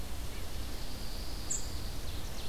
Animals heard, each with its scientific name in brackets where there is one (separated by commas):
Ovenbird (Seiurus aurocapilla), Pine Warbler (Setophaga pinus), unidentified call